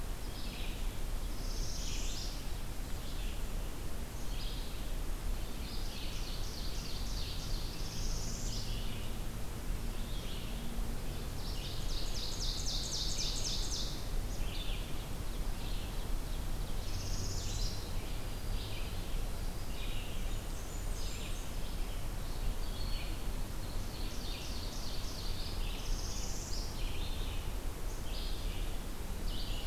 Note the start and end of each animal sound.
[0.00, 29.66] Red-eyed Vireo (Vireo olivaceus)
[1.17, 2.62] Northern Parula (Setophaga americana)
[5.59, 7.64] Ovenbird (Seiurus aurocapilla)
[7.33, 8.95] Northern Parula (Setophaga americana)
[11.20, 14.10] Ovenbird (Seiurus aurocapilla)
[16.51, 18.09] Northern Parula (Setophaga americana)
[18.04, 19.32] Black-throated Green Warbler (Setophaga virens)
[20.13, 21.59] Blackburnian Warbler (Setophaga fusca)
[23.44, 25.70] Ovenbird (Seiurus aurocapilla)
[25.66, 26.96] Northern Parula (Setophaga americana)
[28.91, 29.66] Black-and-white Warbler (Mniotilta varia)

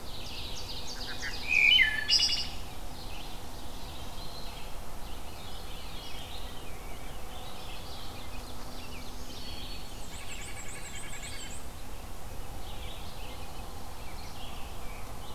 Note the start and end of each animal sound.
[0.00, 1.86] Ovenbird (Seiurus aurocapilla)
[0.00, 15.35] Red-eyed Vireo (Vireo olivaceus)
[0.80, 2.61] Wood Thrush (Hylocichla mustelina)
[2.83, 4.79] Ovenbird (Seiurus aurocapilla)
[5.18, 7.22] Veery (Catharus fuscescens)
[6.42, 9.16] Rose-breasted Grosbeak (Pheucticus ludovicianus)
[7.81, 9.39] Ovenbird (Seiurus aurocapilla)
[8.49, 10.18] Black-throated Green Warbler (Setophaga virens)
[9.58, 11.85] Black-and-white Warbler (Mniotilta varia)
[9.95, 11.66] White-breasted Nuthatch (Sitta carolinensis)
[10.04, 11.68] Veery (Catharus fuscescens)
[12.46, 15.35] Rose-breasted Grosbeak (Pheucticus ludovicianus)

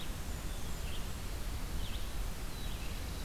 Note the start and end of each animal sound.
[0.00, 1.37] Blackburnian Warbler (Setophaga fusca)
[0.00, 3.16] Red-eyed Vireo (Vireo olivaceus)
[2.35, 3.24] Black-throated Blue Warbler (Setophaga caerulescens)

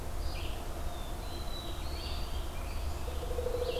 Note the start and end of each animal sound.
[0.00, 3.80] Red-eyed Vireo (Vireo olivaceus)
[0.54, 2.70] Black-throated Blue Warbler (Setophaga caerulescens)
[0.99, 3.71] American Robin (Turdus migratorius)
[3.02, 3.80] Pileated Woodpecker (Dryocopus pileatus)

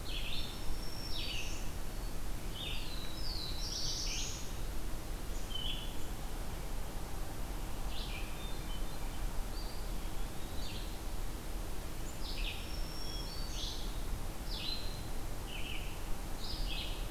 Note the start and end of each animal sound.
[0.03, 17.10] Red-eyed Vireo (Vireo olivaceus)
[0.28, 1.75] Black-throated Green Warbler (Setophaga virens)
[2.58, 4.61] Black-throated Blue Warbler (Setophaga caerulescens)
[8.21, 9.29] Hermit Thrush (Catharus guttatus)
[9.81, 10.91] Eastern Wood-Pewee (Contopus virens)
[12.45, 13.89] Black-throated Green Warbler (Setophaga virens)

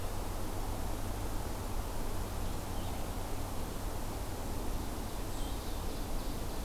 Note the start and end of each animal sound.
[0.00, 5.65] Blue-headed Vireo (Vireo solitarius)
[4.88, 6.64] Ovenbird (Seiurus aurocapilla)

